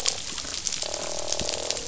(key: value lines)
label: biophony, croak
recorder: SoundTrap 500